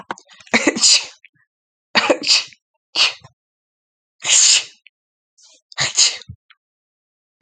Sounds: Sneeze